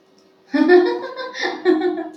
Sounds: Laughter